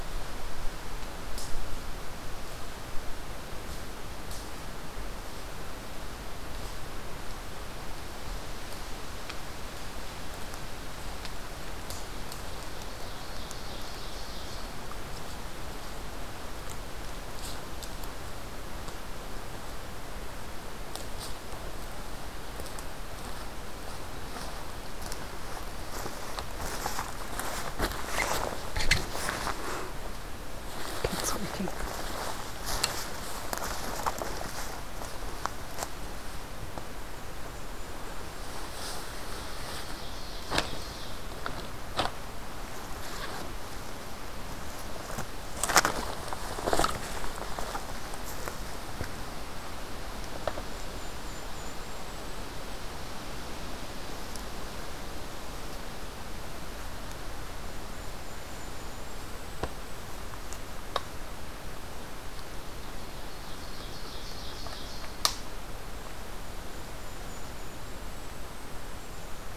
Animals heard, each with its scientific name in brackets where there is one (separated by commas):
Golden-crowned Kinglet (Regulus satrapa), Ovenbird (Seiurus aurocapilla)